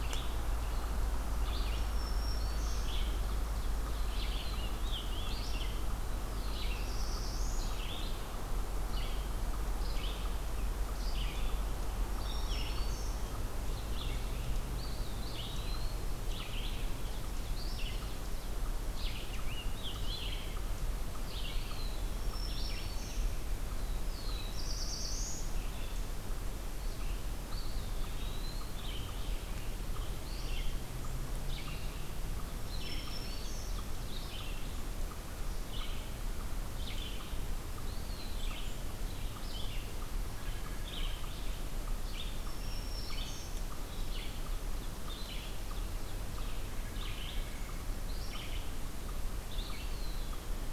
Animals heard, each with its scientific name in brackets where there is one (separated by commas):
Scarlet Tanager (Piranga olivacea), Eastern Wood-Pewee (Contopus virens), Black-throated Blue Warbler (Setophaga caerulescens), Black-throated Green Warbler (Setophaga virens), White-breasted Nuthatch (Sitta carolinensis), Red-eyed Vireo (Vireo olivaceus)